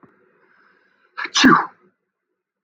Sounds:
Sneeze